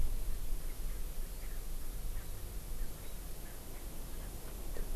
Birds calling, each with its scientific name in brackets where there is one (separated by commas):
Erckel's Francolin (Pternistis erckelii)